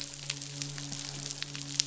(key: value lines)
label: biophony, midshipman
recorder: SoundTrap 500